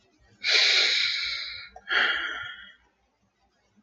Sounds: Sigh